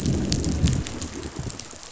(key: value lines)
label: biophony, growl
recorder: SoundTrap 500